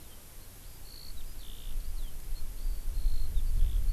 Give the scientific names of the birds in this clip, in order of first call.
Alauda arvensis